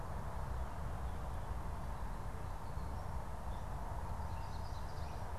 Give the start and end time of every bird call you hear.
[4.09, 5.29] Yellow Warbler (Setophaga petechia)

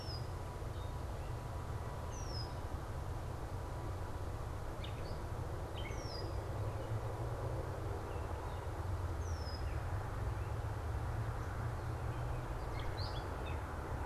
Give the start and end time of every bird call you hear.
[0.00, 13.76] Gray Catbird (Dumetella carolinensis)
[1.96, 2.76] Red-winged Blackbird (Agelaius phoeniceus)
[5.66, 6.46] Red-winged Blackbird (Agelaius phoeniceus)
[9.06, 9.86] Red-winged Blackbird (Agelaius phoeniceus)

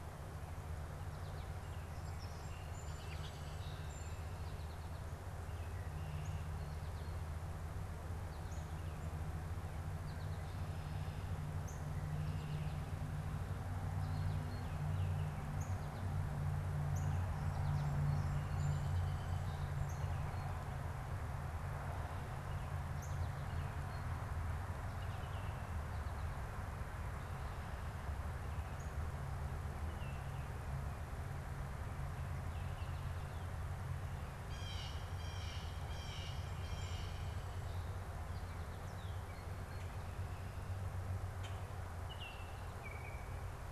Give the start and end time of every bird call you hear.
[0.89, 1.59] American Goldfinch (Spinus tristis)
[1.69, 4.39] Song Sparrow (Melospiza melodia)
[4.29, 5.09] American Goldfinch (Spinus tristis)
[5.69, 6.49] Red-winged Blackbird (Agelaius phoeniceus)
[6.09, 6.39] Northern Cardinal (Cardinalis cardinalis)
[8.39, 8.69] Northern Cardinal (Cardinalis cardinalis)
[9.89, 10.59] American Goldfinch (Spinus tristis)
[11.59, 11.79] Northern Cardinal (Cardinalis cardinalis)
[11.99, 12.89] Red-winged Blackbird (Agelaius phoeniceus)
[15.49, 15.79] Northern Cardinal (Cardinalis cardinalis)
[16.79, 17.19] Northern Cardinal (Cardinalis cardinalis)
[17.59, 20.59] Song Sparrow (Melospiza melodia)
[19.69, 20.19] Northern Cardinal (Cardinalis cardinalis)
[22.89, 23.19] Northern Cardinal (Cardinalis cardinalis)
[24.79, 25.89] Baltimore Oriole (Icterus galbula)
[29.69, 30.69] Baltimore Oriole (Icterus galbula)
[34.29, 37.49] Blue Jay (Cyanocitta cristata)
[38.89, 39.69] Northern Cardinal (Cardinalis cardinalis)
[41.79, 43.49] Baltimore Oriole (Icterus galbula)

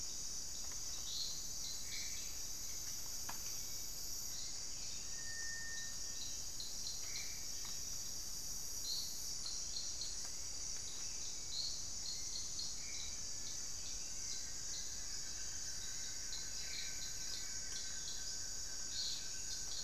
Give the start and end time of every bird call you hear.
[0.00, 7.66] Black-faced Antthrush (Formicarius analis)
[0.00, 8.26] Cinereous Tinamou (Crypturellus cinereus)
[8.76, 19.83] Hauxwell's Thrush (Turdus hauxwelli)
[12.86, 19.83] Black-faced Antthrush (Formicarius analis)
[13.36, 19.83] Buff-throated Woodcreeper (Xiphorhynchus guttatus)

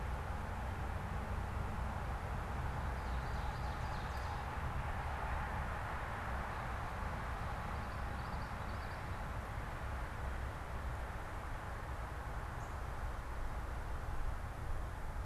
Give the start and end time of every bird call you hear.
[2.73, 4.74] Ovenbird (Seiurus aurocapilla)
[7.43, 9.23] Common Yellowthroat (Geothlypis trichas)

